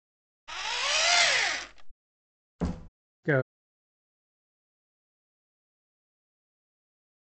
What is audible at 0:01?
engine